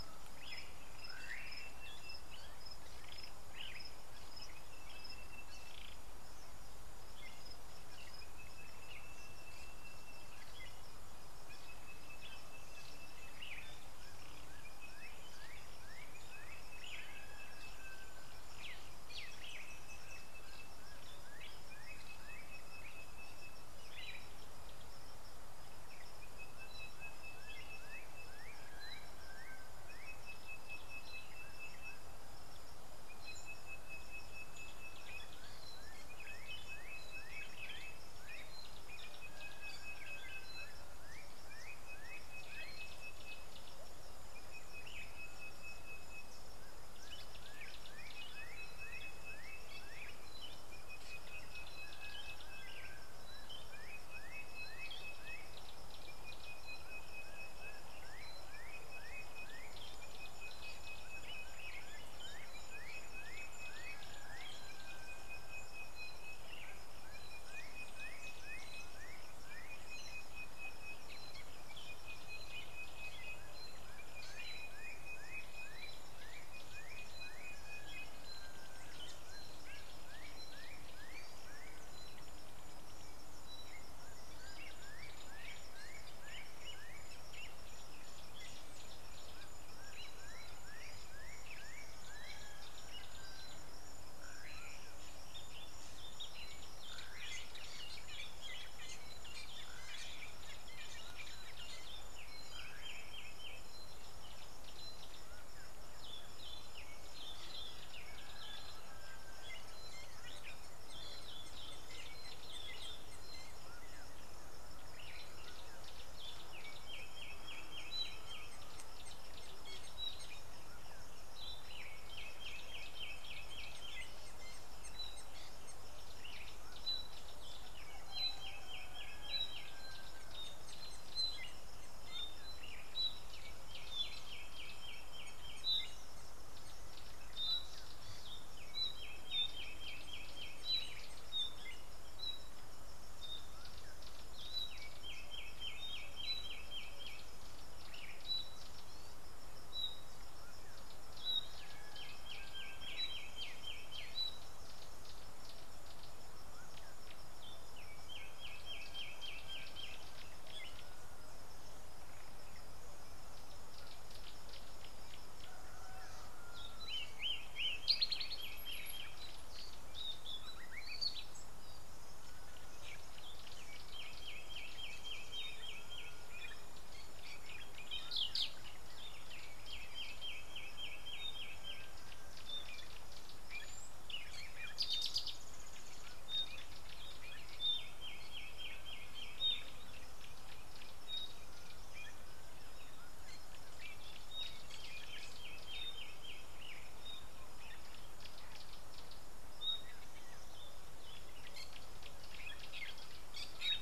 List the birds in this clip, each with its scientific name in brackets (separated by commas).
Fork-tailed Drongo (Dicrurus adsimilis), Sulphur-breasted Bushshrike (Telophorus sulfureopectus)